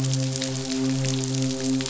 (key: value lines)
label: biophony, midshipman
recorder: SoundTrap 500